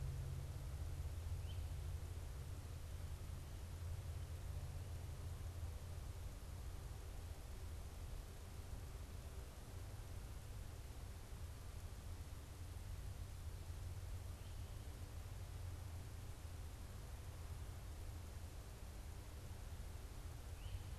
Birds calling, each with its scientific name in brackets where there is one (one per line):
Great Crested Flycatcher (Myiarchus crinitus)